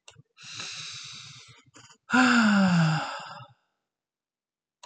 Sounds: Sigh